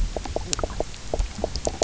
{"label": "biophony, knock croak", "recorder": "SoundTrap 300"}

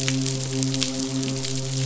{"label": "biophony, midshipman", "recorder": "SoundTrap 500"}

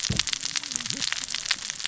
{"label": "biophony, cascading saw", "recorder": "SoundTrap 600 or HydroMoth"}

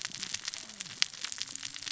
{"label": "biophony, cascading saw", "recorder": "SoundTrap 600 or HydroMoth"}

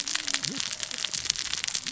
{"label": "biophony, cascading saw", "recorder": "SoundTrap 600 or HydroMoth"}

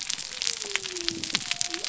{"label": "biophony", "recorder": "SoundTrap 300"}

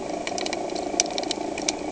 {"label": "anthrophony, boat engine", "recorder": "HydroMoth"}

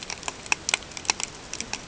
{"label": "ambient", "recorder": "HydroMoth"}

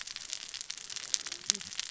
{"label": "biophony, cascading saw", "recorder": "SoundTrap 600 or HydroMoth"}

